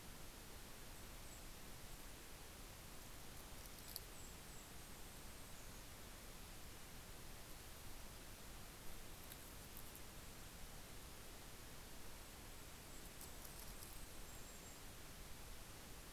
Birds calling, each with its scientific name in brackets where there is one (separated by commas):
Golden-crowned Kinglet (Regulus satrapa)